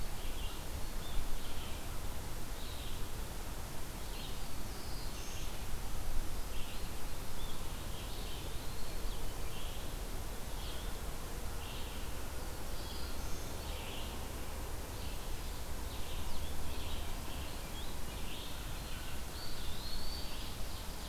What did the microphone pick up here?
Red-eyed Vireo, Black-throated Blue Warbler, Eastern Wood-Pewee, Ovenbird